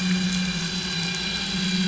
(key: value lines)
label: anthrophony, boat engine
recorder: SoundTrap 500